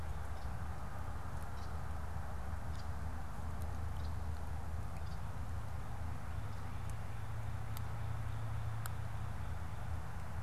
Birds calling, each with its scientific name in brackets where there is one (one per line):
Red-winged Blackbird (Agelaius phoeniceus)